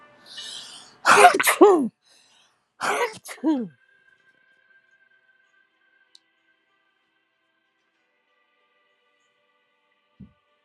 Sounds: Sneeze